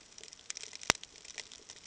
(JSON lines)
{"label": "ambient", "recorder": "HydroMoth"}